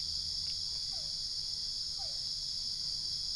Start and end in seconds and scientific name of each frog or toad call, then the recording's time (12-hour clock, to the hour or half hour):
0.9	2.6	Physalaemus cuvieri
4:30am